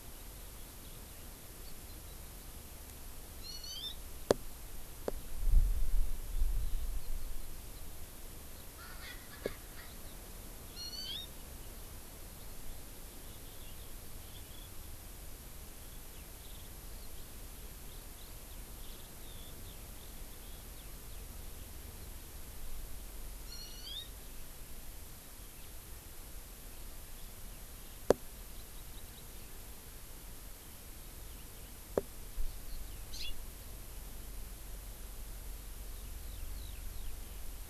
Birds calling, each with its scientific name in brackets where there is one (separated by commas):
Hawaii Amakihi (Chlorodrepanis virens), Erckel's Francolin (Pternistis erckelii), Eurasian Skylark (Alauda arvensis)